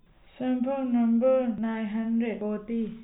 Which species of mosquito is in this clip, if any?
no mosquito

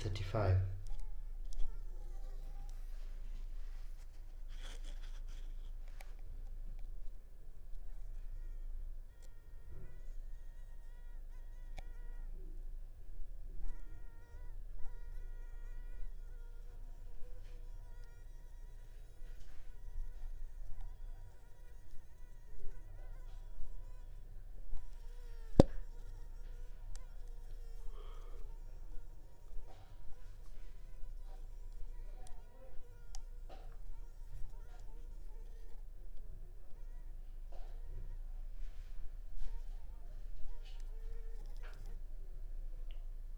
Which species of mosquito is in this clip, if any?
Culex pipiens complex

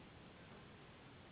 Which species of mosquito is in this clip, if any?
Anopheles gambiae s.s.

